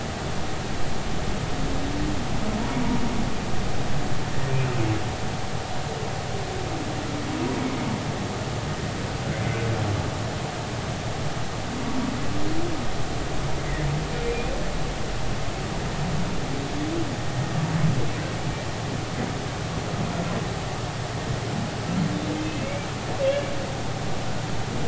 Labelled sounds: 14.2	14.5	humpback whale, 2.3 to 2.5 kHz
22.4	22.9	humpback whale, 2.0 to 2.8 kHz

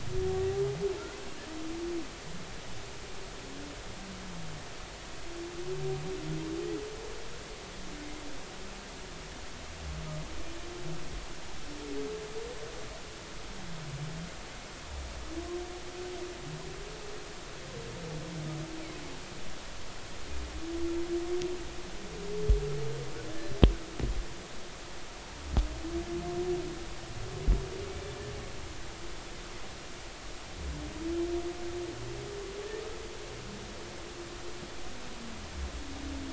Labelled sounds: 23.3	23.5	humpback whale, 1.7 to 1.8 kHz
27.9	28.1	humpback whale, 2.2 to 2.4 kHz

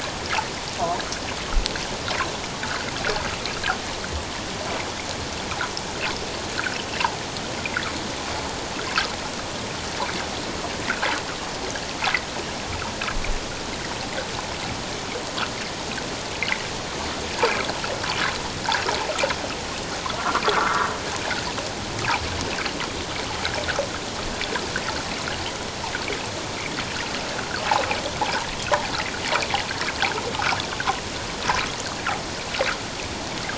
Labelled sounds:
20.2	20.9	water noise, 0.97 to 1.6 kHz
28.2	28.5	water noise, 0.78 to 1.0 kHz

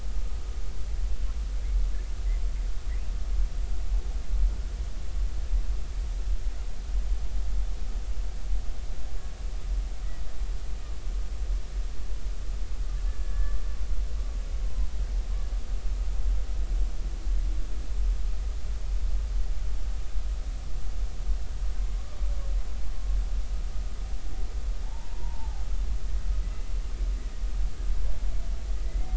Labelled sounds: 13.1	13.6	humpback whale, 1.1 to 1.8 kHz
14.6	14.9	humpback whale, 0.96 to 1.1 kHz
22.0	22.3	humpback whale, 1.1 to 1.2 kHz
24.8	26.7	humpback whale, 0.80 to 2.0 kHz
28.8	29.1	humpback whale, 1.9 to 2.2 kHz

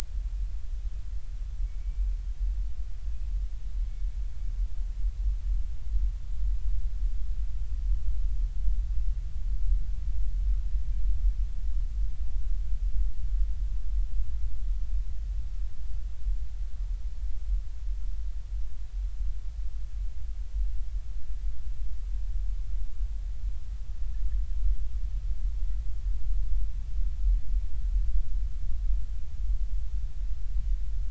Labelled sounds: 1.8	2.1	killer whale, Bigg's (transient), 2.2 to 2.4 kHz

